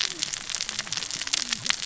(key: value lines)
label: biophony, cascading saw
recorder: SoundTrap 600 or HydroMoth